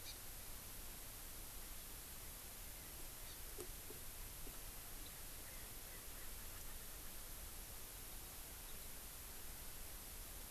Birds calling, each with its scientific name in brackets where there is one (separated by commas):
Hawaii Amakihi (Chlorodrepanis virens), Erckel's Francolin (Pternistis erckelii)